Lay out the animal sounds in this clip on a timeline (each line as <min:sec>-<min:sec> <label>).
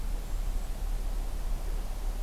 0:00.0-0:00.9 Golden-crowned Kinglet (Regulus satrapa)